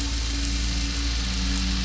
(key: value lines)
label: anthrophony, boat engine
recorder: SoundTrap 500